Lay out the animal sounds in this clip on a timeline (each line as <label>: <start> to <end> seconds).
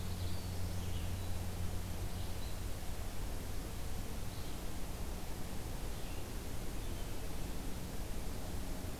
Ovenbird (Seiurus aurocapilla): 0.0 to 0.5 seconds
Black-throated Blue Warbler (Setophaga caerulescens): 0.0 to 1.0 seconds
Red-eyed Vireo (Vireo olivaceus): 0.0 to 6.3 seconds